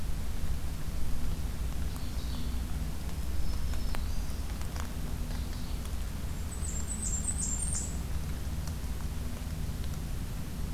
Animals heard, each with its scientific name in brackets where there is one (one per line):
Ovenbird (Seiurus aurocapilla)
Black-throated Green Warbler (Setophaga virens)
Blackburnian Warbler (Setophaga fusca)